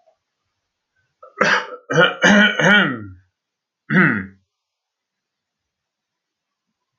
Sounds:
Throat clearing